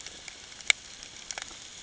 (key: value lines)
label: ambient
recorder: HydroMoth